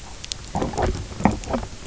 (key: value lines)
label: biophony, knock croak
recorder: SoundTrap 300